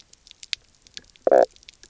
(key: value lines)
label: biophony, knock croak
recorder: SoundTrap 300